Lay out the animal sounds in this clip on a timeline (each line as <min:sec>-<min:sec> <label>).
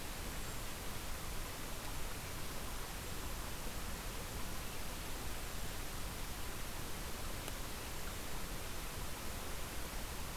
0:00.0-0:00.7 Cedar Waxwing (Bombycilla cedrorum)
0:02.6-0:03.4 Cedar Waxwing (Bombycilla cedrorum)
0:05.1-0:05.9 Cedar Waxwing (Bombycilla cedrorum)